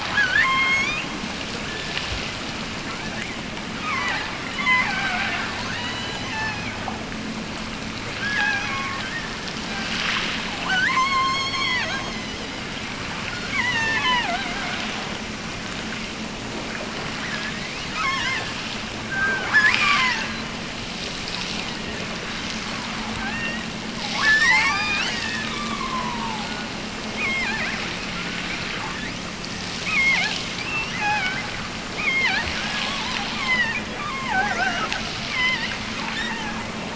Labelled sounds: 0.0	1.2	killer whale, offshore, 0.57 to 7.8 kHz
1.6	2.2	killer whale, offshore, 1.2 to 1.8 kHz
2.8	6.8	killer whale, offshore, 0.48 to 6.3 kHz
8.1	9.5	killer whale, offshore, 0.61 to 6.2 kHz
10.4	12.5	killer whale, offshore, 0.50 to 8.0 kHz
13.1	14.5	killer whale, offshore, 0.57 to 8.0 kHz
17.7	18.7	killer whale, offshore, 0.48 to 6.8 kHz
19.1	20.5	killer whale, offshore, 0.57 to 8.0 kHz
21.4	22.1	killer whale, offshore, 1.6 to 3.3 kHz
23.2	23.7	killer whale, offshore, 1.4 to 5.8 kHz
24.1	26.6	killer whale, offshore, 0.50 to 7.9 kHz
27.1	29.2	killer whale, offshore, 0.48 to 4.9 kHz
29.7	31.5	killer whale, offshore, 0.50 to 3.6 kHz
31.9	34.9	killer whale, offshore, 0.48 to 5.4 kHz
35.2	36.7	killer whale, offshore, 0.61 to 7.9 kHz

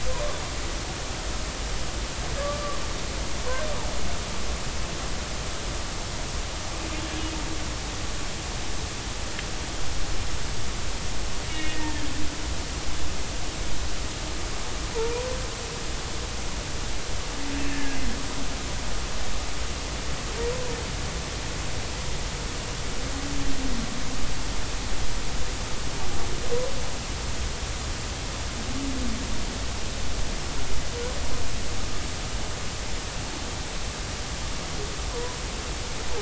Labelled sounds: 0.1	0.3	humpback whale, 0.93 to 1.2 kHz
2.4	2.8	humpback whale, 1.1 to 1.3 kHz
11.5	11.9	humpback whale, 1.8 to 2.9 kHz
14.9	15.3	humpback whale, 0.83 to 1.0 kHz
17.7	18.0	humpback whale, 1.6 to 1.8 kHz
35.1	35.4	humpback whale, 0.93 to 1.1 kHz

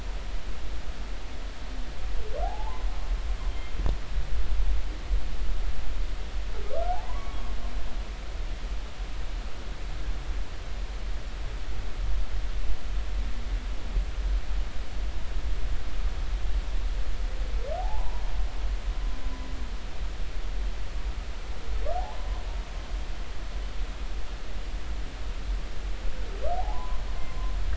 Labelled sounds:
2.4	2.9	humpback whale, 0.80 to 1.1 kHz
3.5	3.8	humpback whale, 3.1 to 3.2 kHz
7.0	7.5	humpback whale, 0.83 to 1.2 kHz
17.8	18.2	humpback whale, 0.80 to 1.1 kHz
26.5	27.5	humpback whale, 0.80 to 1.1 kHz

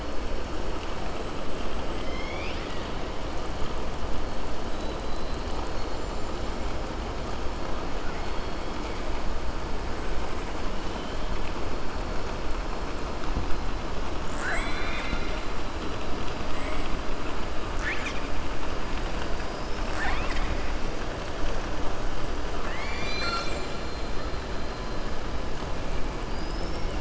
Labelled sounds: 1.9	2.9	killer whale, southern resident, 1.8 to 5.8 kHz
14.3	15.4	killer whale, southern resident, 0.70 to 4.8 kHz
22.9	23.8	killer whale, southern resident, 1.3 to 8.0 kHz
26.2	26.9	killer whale, southern resident, 4.7 to 5.5 kHz

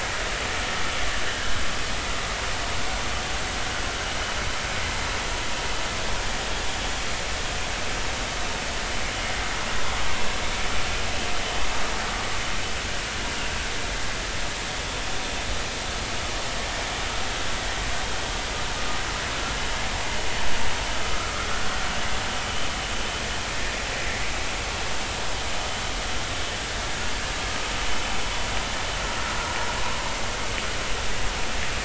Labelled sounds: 1.3	1.6	vessel noise, 1.5 to 1.7 kHz
21.0	21.5	vessel noise, 1.1 to 1.4 kHz

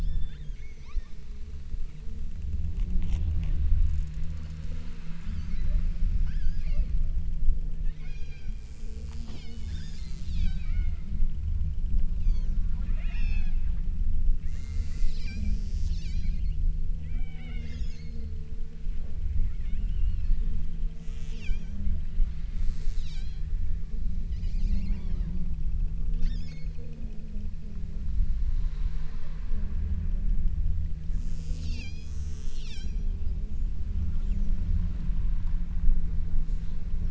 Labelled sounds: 0.0	1.6	killer whale, southern Alaska resident, 0.76 to 8.0 kHz
5.1	7.3	killer whale, southern Alaska resident, 0.93 to 8.0 kHz
8.0	11.1	killer whale, southern Alaska resident, 0.51 to 8.0 kHz
12.1	12.7	killer whale, southern Alaska resident, 0.76 to 7.0 kHz
13.0	13.8	killer whale, southern Alaska resident, 0.47 to 8.0 kHz
14.5	16.7	killer whale, southern Alaska resident, 0.38 to 8.0 kHz
17.1	18.4	killer whale, southern Alaska resident, 0.57 to 8.0 kHz
19.6	20.7	killer whale, southern Alaska resident, 1.4 to 5.7 kHz
21.1	21.9	killer whale, southern Alaska resident, 1.1 to 8.0 kHz
22.4	23.6	killer whale, southern Alaska resident, 1.2 to 8.0 kHz
24.3	25.6	killer whale, southern Alaska resident, 1.2 to 8.0 kHz
26.1	27.1	killer whale, southern Alaska resident, 1.0 to 8.0 kHz
31.1	33.2	killer whale, southern Alaska resident, 0.55 to 8.0 kHz

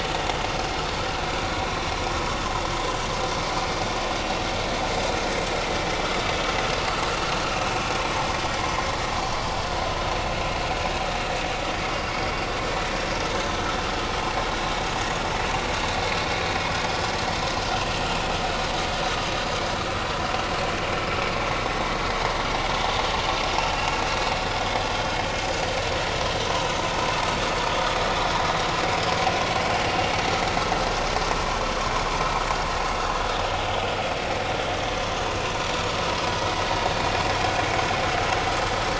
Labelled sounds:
30.5	30.8	vessel noise, 6.5 to 6.7 kHz

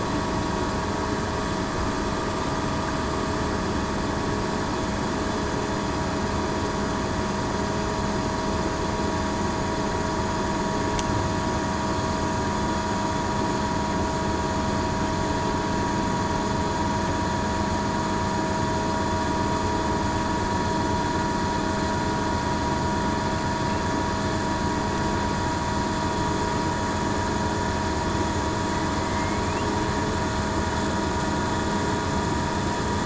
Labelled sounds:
29.0	29.4	killer whale, southern resident, 2.0 to 2.2 kHz

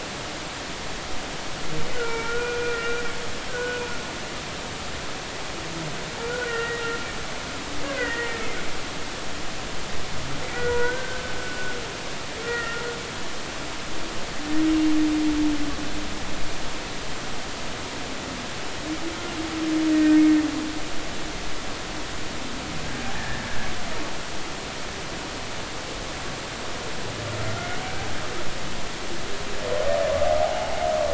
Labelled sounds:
1.9	3.0	humpback whale, 1.3 to 5.6 kHz
3.5	3.8	humpback whale, 1.4 to 1.6 kHz
6.2	6.8	humpback whale, 1.3 to 2.0 kHz
7.9	8.4	humpback whale, 1.8 to 2.1 kHz
10.5	11.2	humpback whale, 0.90 to 2.0 kHz
12.4	12.8	humpback whale, 1.3 to 2.0 kHz
14.7	14.9	humpback whale, 2.75 to 2.85 kHz
19.9	20.2	humpback whale, 1.8 to 1.9 kHz
23.1	23.4	humpback whale, 1.6 to 1.9 kHz
30.4	30.7	humpback whale, 0.80 to 0.90 kHz

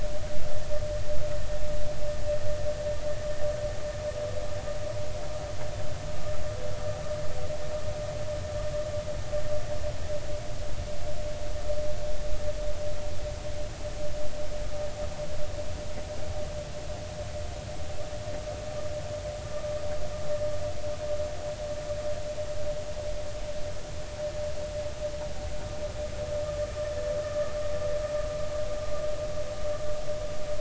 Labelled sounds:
27.2	27.6	vessel noise, 1.1 to 1.4 kHz

